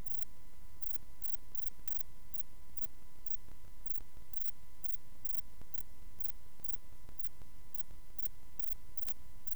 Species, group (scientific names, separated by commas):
Rhacocleis poneli, Orthoptera